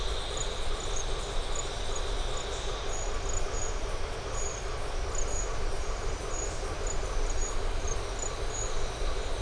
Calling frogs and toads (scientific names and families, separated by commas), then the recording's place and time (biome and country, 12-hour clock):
Boana faber (Hylidae)
Atlantic Forest, Brazil, 6:45pm